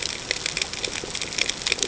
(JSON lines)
{"label": "ambient", "recorder": "HydroMoth"}